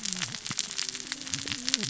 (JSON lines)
{"label": "biophony, cascading saw", "recorder": "SoundTrap 600 or HydroMoth"}